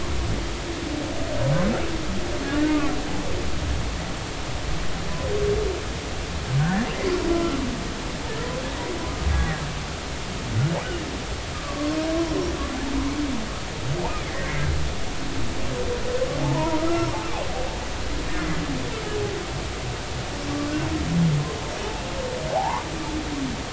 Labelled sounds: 6.6	7.6	humpback whale, 1.3 to 1.9 kHz
11.5	12.0	humpback whale, 0.99 to 1.3 kHz
14.0	14.6	humpback whale, 1.8 to 2.5 kHz
16.4	17.1	humpback whale, 0.83 to 1.4 kHz
22.5	22.9	humpback whale, 0.80 to 1.2 kHz

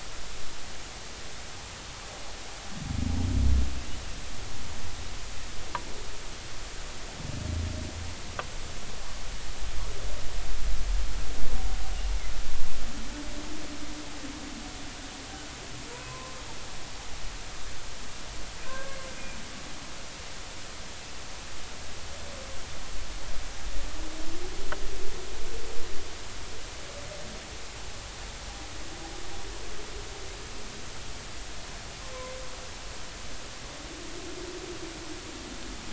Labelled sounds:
15.9	16.4	humpback whale, 0.93 to 1.1 kHz
18.6	19.0	humpback whale, 0.99 to 1.7 kHz

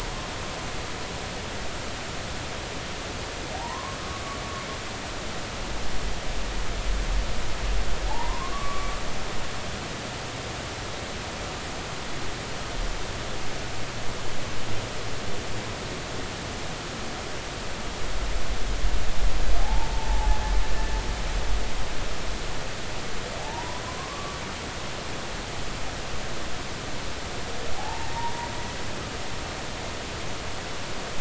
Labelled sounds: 3.5	4.0	humpback whale, 0.80 to 1.2 kHz
8.1	9.0	humpback whale, 0.80 to 1.3 kHz
19.6	20.4	humpback whale, 0.80 to 0.96 kHz
23.4	24.4	humpback whale, 0.80 to 1.2 kHz
27.8	28.5	humpback whale, 0.80 to 0.99 kHz

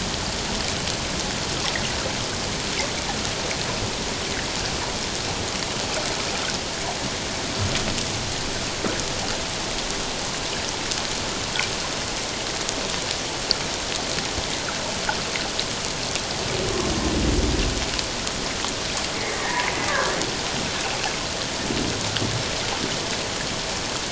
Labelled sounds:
19.3	20.2	humpback whale, 0.91 to 2.0 kHz

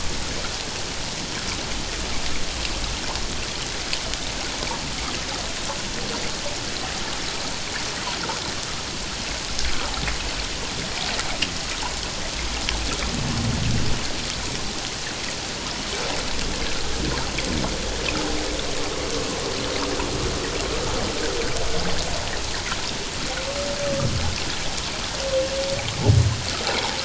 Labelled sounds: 9.7	10.0	humpback whale, 0.78 to 1.1 kHz

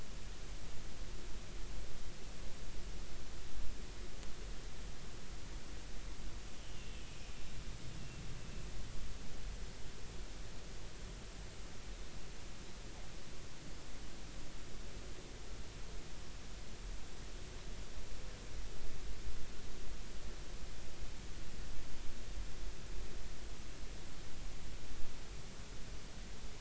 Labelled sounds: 6.6	7.3	killer whale, offshore, 2.4 to 3.1 kHz

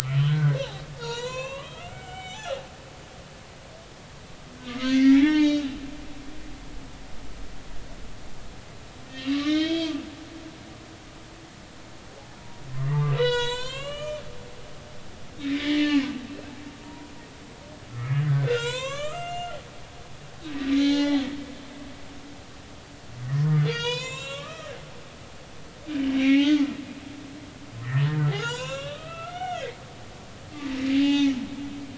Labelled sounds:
0.0	2.6	humpback whale, 0.80 to 7.7 kHz
4.7	5.7	humpback whale, 0.80 to 6.5 kHz
9.1	10.0	humpback whale, 1.1 to 3.9 kHz
12.4	14.2	humpback whale, 0.83 to 8.0 kHz
15.4	16.1	humpback whale, 1.7 to 3.8 kHz
16.8	19.5	humpback whale, 0.86 to 7.9 kHz
20.8	21.3	humpback whale, 0.80 to 3.2 kHz
23.6	24.7	humpback whale, 0.90 to 7.6 kHz
25.9	26.6	humpback whale, 0.80 to 3.9 kHz
27.8	29.8	humpback whale, 0.80 to 7.5 kHz
31.0	31.4	humpback whale, 0.80 to 3.2 kHz

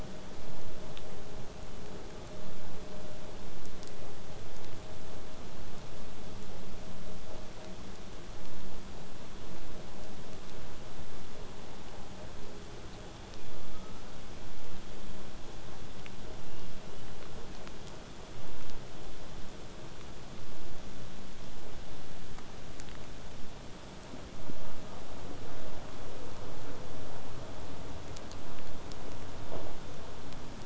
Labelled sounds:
13.5	14.1	killer whale, southern resident, whistle, 1.0 to 1.5 kHz
16.4	17.9	killer whale, southern resident, whistle, 2.2 to 3.3 kHz

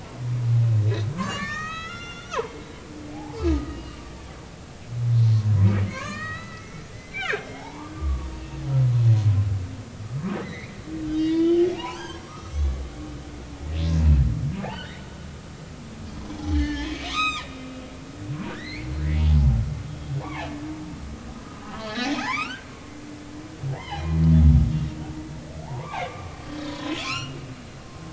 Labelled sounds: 1.2	2.4	humpback whale, 0.96 to 7.6 kHz
3.1	4.0	humpback whale, 0.80 to 2.9 kHz
5.5	8.3	humpback whale, 0.80 to 5.8 kHz
10.4	12.9	humpback whale, 0.80 to 6.3 kHz
14.0	14.2	humpback whale, 2.5 to 2.7 kHz
14.6	15.1	humpback whale, 0.80 to 3.2 kHz
16.2	17.5	humpback whale, 0.99 to 7.7 kHz
18.5	18.9	humpback whale, 1.4 to 4.7 kHz
19.9	20.5	humpback whale, 0.80 to 3.3 kHz
21.9	22.7	humpback whale, 0.80 to 3.9 kHz
23.8	24.2	humpback whale, 0.80 to 3.2 kHz
25.7	26.3	humpback whale, 0.80 to 2.6 kHz
26.7	27.4	humpback whale, 0.93 to 5.9 kHz

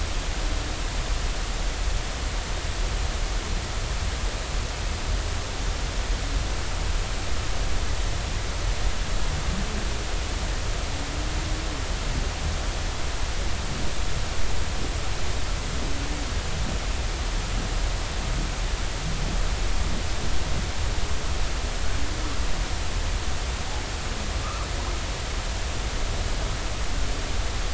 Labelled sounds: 24.4	24.7	humpback whale, 1.1 to 1.4 kHz

